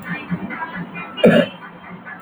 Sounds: Cough